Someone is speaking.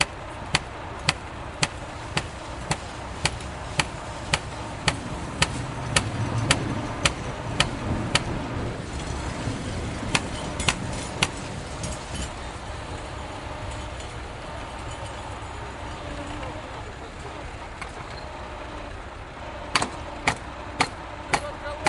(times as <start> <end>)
21.3 21.9